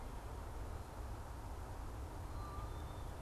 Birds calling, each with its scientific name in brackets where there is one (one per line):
unidentified bird